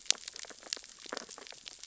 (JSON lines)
{"label": "biophony, sea urchins (Echinidae)", "recorder": "SoundTrap 600 or HydroMoth"}